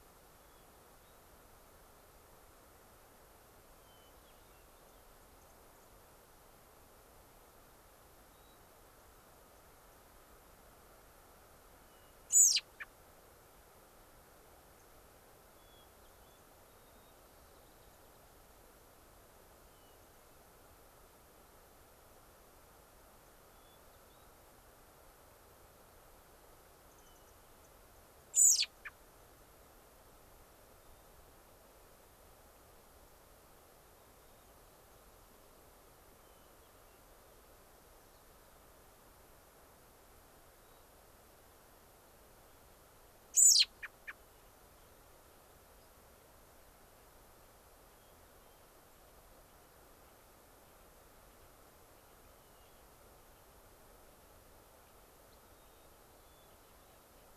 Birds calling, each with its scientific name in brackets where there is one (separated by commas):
American Robin (Turdus migratorius), unidentified bird, Mountain Chickadee (Poecile gambeli), Hermit Thrush (Catharus guttatus), White-crowned Sparrow (Zonotrichia leucophrys)